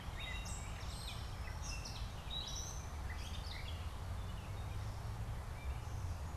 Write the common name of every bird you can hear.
Gray Catbird, Eastern Towhee